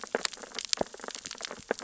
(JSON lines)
{"label": "biophony, sea urchins (Echinidae)", "recorder": "SoundTrap 600 or HydroMoth"}